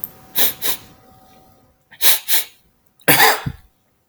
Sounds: Sniff